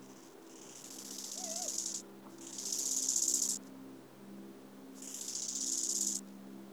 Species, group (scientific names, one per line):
Chorthippus biguttulus
Orthoptera